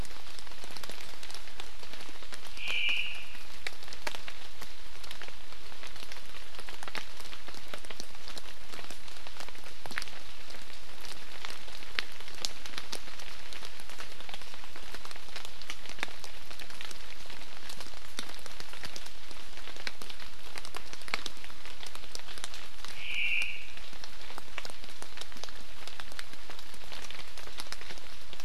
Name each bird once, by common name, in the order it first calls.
Omao